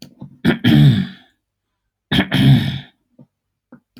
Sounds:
Throat clearing